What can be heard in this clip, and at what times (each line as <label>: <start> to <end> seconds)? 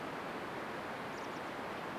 Chestnut-backed Chickadee call: 0 to 2 seconds